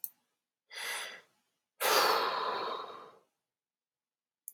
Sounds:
Sigh